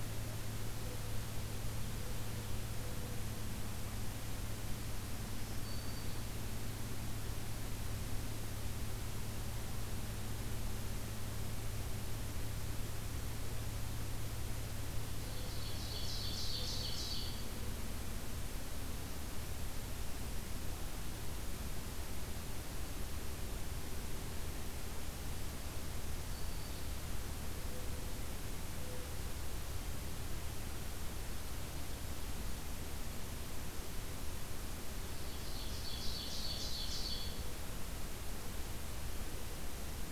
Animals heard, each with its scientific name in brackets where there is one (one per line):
Ovenbird (Seiurus aurocapilla)
Black-throated Green Warbler (Setophaga virens)